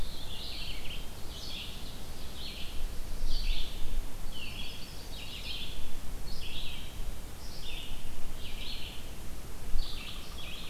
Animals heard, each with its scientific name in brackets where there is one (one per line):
Pileated Woodpecker (Dryocopus pileatus)
Chimney Swift (Chaetura pelagica)
Red-eyed Vireo (Vireo olivaceus)
Black-throated Blue Warbler (Setophaga caerulescens)